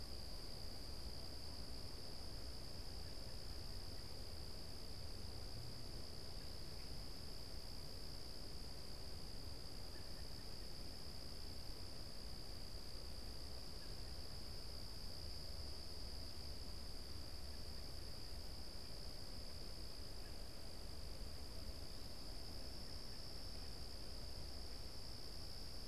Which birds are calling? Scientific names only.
Turdus migratorius